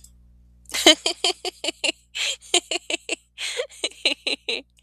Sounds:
Laughter